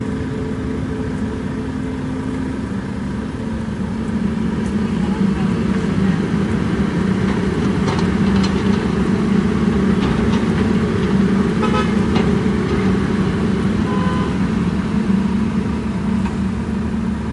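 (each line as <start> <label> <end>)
0.0 A construction site with a machine operating nearby, producing a deep, rumbling engine noise characterized by a steady hum with occasional mechanical clanks and thuds. 17.3
11.3 A car horn honks sharply and loudly, cutting through the background noise with a clear, piercing tone. 12.2
13.9 A car horn honks sharply and loudly, cutting through the background noise with a clear, piercing tone. 14.4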